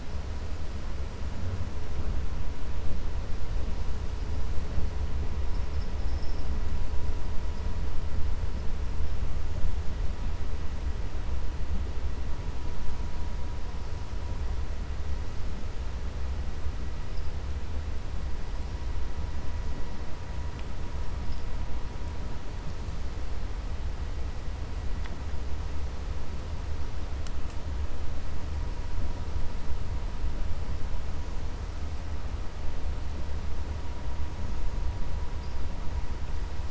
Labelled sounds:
6.0	6.5	vessel noise, 4.8 to 5.6 kHz

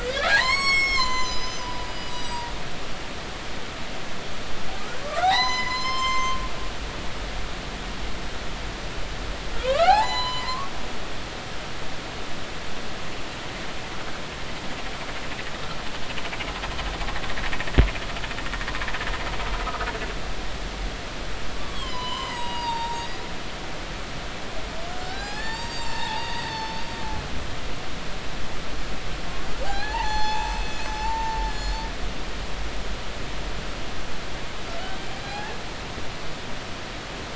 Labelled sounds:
0.0	2.5	humpback whale, 0.80 to 8.0 kHz
5.0	6.4	humpback whale, 0.80 to 7.4 kHz
9.6	10.7	humpback whale, 0.80 to 8.0 kHz
21.5	23.2	humpback whale, 0.86 to 8.0 kHz
25.0	26.8	humpback whale, 0.80 to 7.6 kHz
29.6	31.9	humpback whale, 0.80 to 8.0 kHz
35.2	35.5	humpback whale, 0.80 to 4.2 kHz

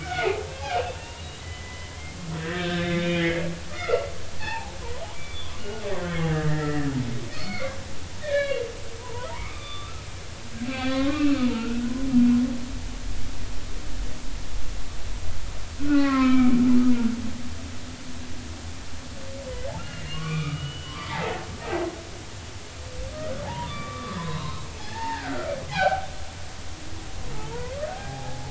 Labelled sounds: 0.0	4.8	humpback whale, 0.80 to 3.8 kHz
5.0	5.8	humpback whale, 0.80 to 3.6 kHz
6.3	6.9	humpback whale, 1.5 to 2.1 kHz
7.3	7.7	humpback whale, 2.0 to 4.7 kHz
8.2	8.6	humpback whale, 1.6 to 4.6 kHz
9.0	10.0	humpback whale, 0.86 to 3.7 kHz
10.6	11.9	humpback whale, 0.80 to 3.5 kHz
15.8	16.6	humpback whale, 0.99 to 2.7 kHz
19.8	21.4	humpback whale, 0.80 to 3.6 kHz
23.4	26.1	humpback whale, 0.80 to 3.9 kHz
27.9	28.4	humpback whale, 0.80 to 0.96 kHz

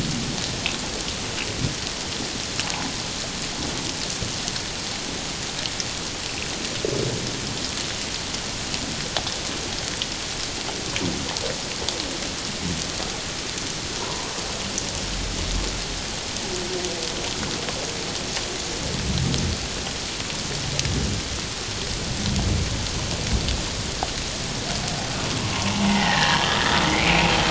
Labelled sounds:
14.0	14.3	humpback whale, 0.88 to 1.2 kHz
25.5	26.6	humpback whale, 0.78 to 2.2 kHz
26.9	27.3	humpback whale, 2.0 to 2.8 kHz

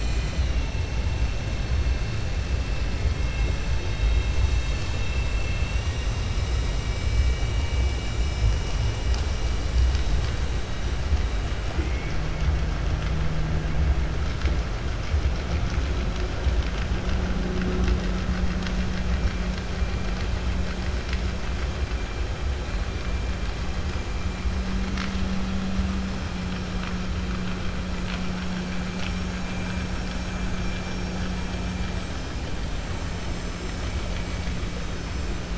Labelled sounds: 11.7	12.1	killer whale, southern resident, 0.66 to 2.7 kHz

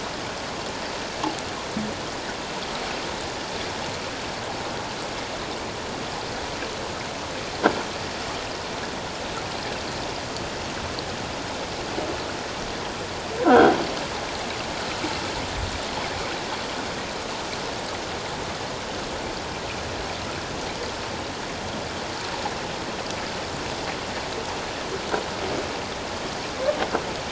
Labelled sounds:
13.4	13.8	croaking sound likely from a nearby submerged object, 1.2 to 1.6 kHz

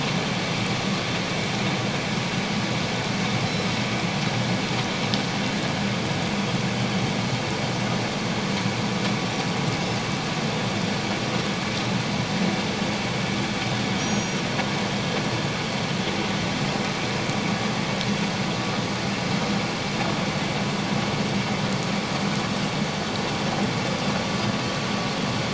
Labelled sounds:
3.4	3.7	Pacific white-sided dolphin, 5.1 to 5.5 kHz
14.0	14.4	Pacific white-sided dolphin, 5.5 to 6.7 kHz

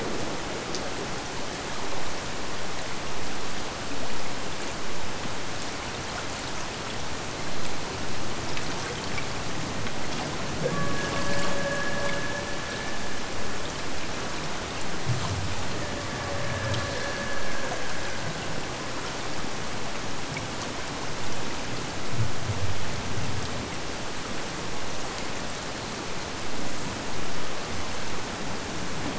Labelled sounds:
10.6	13.1	killer whale, Bigg's (transient), AT1 transient, 0.38 to 3.7 kHz
15.8	18.4	killer whale, Bigg's (transient), AT1 transient, 0.42 to 2.6 kHz

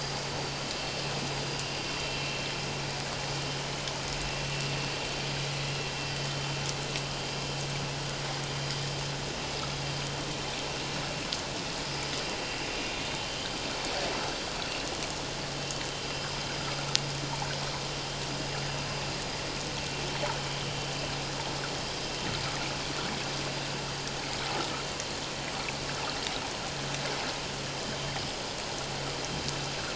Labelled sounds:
13.2	13.5	vessel noise, 2.9 to 3.2 kHz

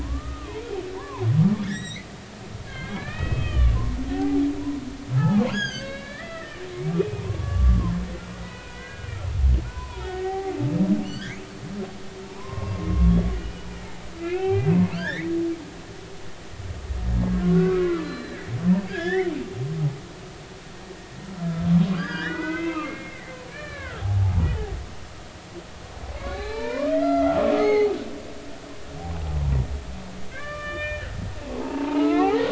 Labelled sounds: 0.0	1.3	humpback whale, 0.80 to 2.6 kHz
1.6	4.4	humpback whale, 0.80 to 7.9 kHz
5.1	7.9	humpback whale, 0.90 to 8.0 kHz
8.4	9.1	humpback whale, 0.93 to 2.6 kHz
9.7	11.4	humpback whale, 0.80 to 3.4 kHz
12.2	13.2	humpback whale, 0.86 to 1.2 kHz
14.1	15.3	humpback whale, 0.80 to 4.1 kHz
17.3	18.4	humpback whale, 1.0 to 4.1 kHz
18.9	19.3	humpback whale, 1.5 to 3.6 kHz
21.9	24.8	humpback whale, 0.80 to 5.1 kHz
26.2	27.9	humpback whale, 0.80 to 6.6 kHz
30.3	32.4	humpback whale, 0.80 to 3.6 kHz

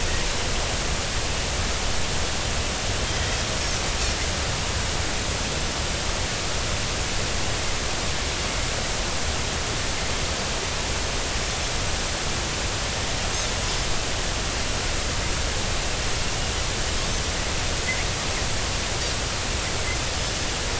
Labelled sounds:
3.1	3.4	Pacific white-sided dolphin, 1.8 to 2.0 kHz

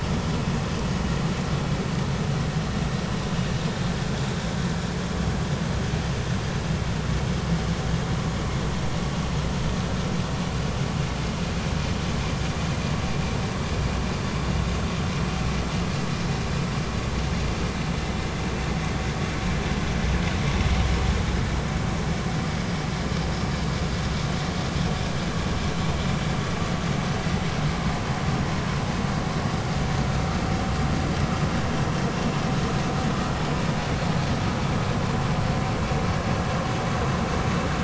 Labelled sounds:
22.5	22.7	vessel noise, 4.9 to 5.1 kHz

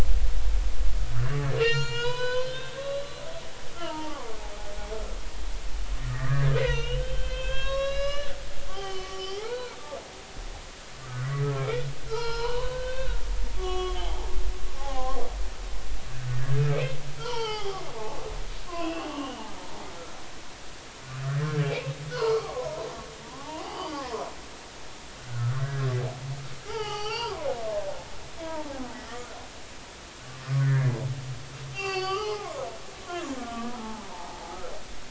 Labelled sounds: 1.6	3.0	humpback whale, 0.86 to 7.2 kHz
3.8	4.3	humpback whale, 0.80 to 1.4 kHz
6.1	8.3	humpback whale, 1.0 to 6.6 kHz
8.7	9.8	humpback whale, 0.80 to 5.7 kHz
11.0	13.2	humpback whale, 0.80 to 5.3 kHz
13.5	15.2	humpback whale, 0.80 to 3.5 kHz
16.5	18.2	humpback whale, 0.80 to 4.5 kHz
18.7	20.1	humpback whale, 0.96 to 3.1 kHz
21.6	22.8	humpback whale, 0.86 to 2.7 kHz
23.2	24.1	humpback whale, 0.80 to 3.1 kHz
24.7	25.6	humpback whale, 1.2 to 4.9 kHz
26.7	28.7	humpback whale, 0.80 to 4.9 kHz
30.6	34.7	humpback whale, 0.80 to 5.4 kHz

